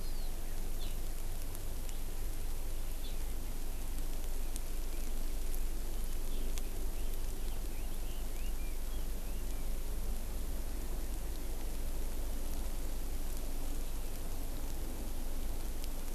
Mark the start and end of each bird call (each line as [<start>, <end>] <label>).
[0.00, 0.30] Hawaii Amakihi (Chlorodrepanis virens)
[7.00, 9.70] Red-billed Leiothrix (Leiothrix lutea)